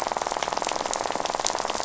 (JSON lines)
{"label": "biophony, rattle", "recorder": "SoundTrap 500"}